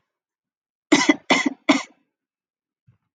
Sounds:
Cough